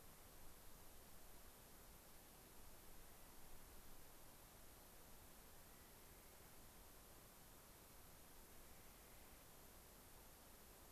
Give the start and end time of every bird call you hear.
[2.94, 3.44] Clark's Nutcracker (Nucifraga columbiana)
[5.44, 6.74] Clark's Nutcracker (Nucifraga columbiana)
[8.54, 9.44] Clark's Nutcracker (Nucifraga columbiana)

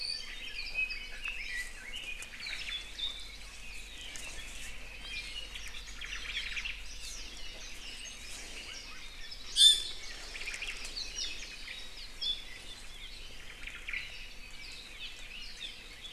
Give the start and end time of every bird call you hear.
[0.00, 2.22] Red-billed Leiothrix (Leiothrix lutea)
[2.22, 2.82] Omao (Myadestes obscurus)
[4.92, 5.52] Iiwi (Drepanis coccinea)
[5.82, 6.82] Omao (Myadestes obscurus)
[9.42, 10.12] Iiwi (Drepanis coccinea)
[10.22, 11.82] Omao (Myadestes obscurus)
[10.92, 11.42] Apapane (Himatione sanguinea)
[11.92, 12.42] Apapane (Himatione sanguinea)
[13.32, 14.12] Omao (Myadestes obscurus)
[13.92, 14.22] Apapane (Himatione sanguinea)
[14.52, 15.72] Apapane (Himatione sanguinea)

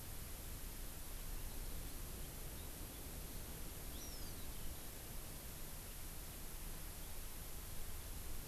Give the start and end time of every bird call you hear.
[3.88, 4.48] Hawaiian Hawk (Buteo solitarius)

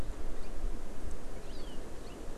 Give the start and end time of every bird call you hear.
[2.09, 2.19] Hawaii Amakihi (Chlorodrepanis virens)

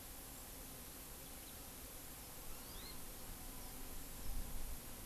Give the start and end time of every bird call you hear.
[2.40, 3.00] Hawaii Amakihi (Chlorodrepanis virens)

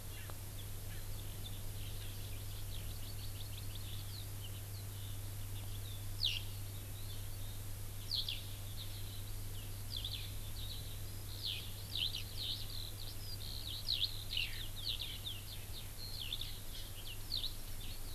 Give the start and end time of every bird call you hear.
[0.06, 0.26] Erckel's Francolin (Pternistis erckelii)
[0.86, 1.06] Erckel's Francolin (Pternistis erckelii)
[1.66, 7.56] Eurasian Skylark (Alauda arvensis)
[8.06, 8.36] Eurasian Skylark (Alauda arvensis)
[9.86, 10.16] Eurasian Skylark (Alauda arvensis)
[10.56, 10.76] Eurasian Skylark (Alauda arvensis)
[11.16, 18.14] Eurasian Skylark (Alauda arvensis)

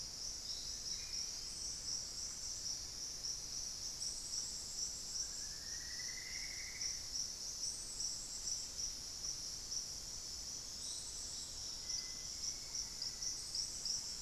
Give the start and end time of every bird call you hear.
[0.62, 1.42] Black-faced Antthrush (Formicarius analis)
[5.12, 7.22] Plumbeous Antbird (Myrmelastes hyperythrus)
[11.72, 12.32] Cinereous Tinamou (Crypturellus cinereus)
[11.82, 13.42] Black-faced Antthrush (Formicarius analis)

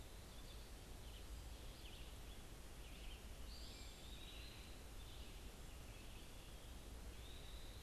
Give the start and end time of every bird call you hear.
[0.00, 7.82] Eastern Wood-Pewee (Contopus virens)
[0.00, 7.82] Red-eyed Vireo (Vireo olivaceus)

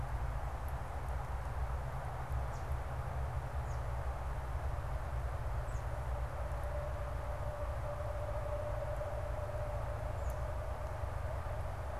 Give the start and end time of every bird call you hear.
[0.00, 10.65] unidentified bird

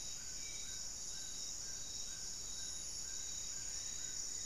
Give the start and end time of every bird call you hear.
[0.00, 4.45] Amazonian Trogon (Trogon ramonianus)
[0.00, 4.45] Spot-winged Antshrike (Pygiptila stellaris)
[3.42, 4.45] Goeldi's Antbird (Akletos goeldii)

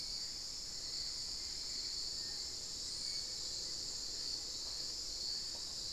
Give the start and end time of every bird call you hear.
[0.00, 5.92] Hauxwell's Thrush (Turdus hauxwelli)
[0.00, 5.92] Spot-winged Antshrike (Pygiptila stellaris)
[0.00, 5.92] unidentified bird

